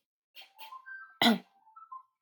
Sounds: Cough